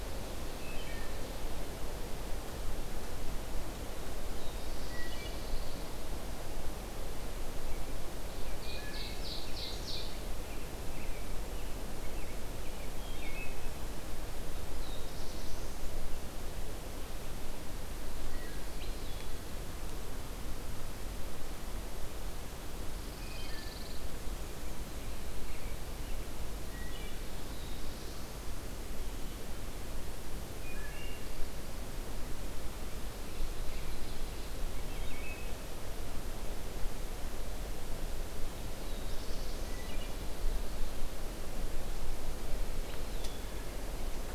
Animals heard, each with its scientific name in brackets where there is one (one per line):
Black-throated Blue Warbler (Setophaga caerulescens)
American Robin (Turdus migratorius)
Ovenbird (Seiurus aurocapilla)
Pine Warbler (Setophaga pinus)
Wood Thrush (Hylocichla mustelina)